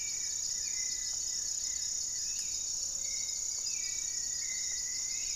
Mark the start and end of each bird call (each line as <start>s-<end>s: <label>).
0.0s-2.6s: Goeldi's Antbird (Akletos goeldii)
0.0s-5.4s: Hauxwell's Thrush (Turdus hauxwelli)
2.8s-5.4s: Gray-fronted Dove (Leptotila rufaxilla)
3.7s-5.4s: Rufous-fronted Antthrush (Formicarius rufifrons)